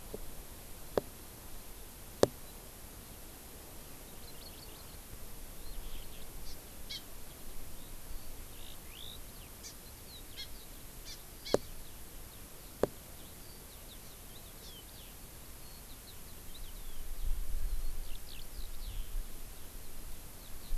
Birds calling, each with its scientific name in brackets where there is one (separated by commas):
Eurasian Skylark (Alauda arvensis), Hawaii Amakihi (Chlorodrepanis virens)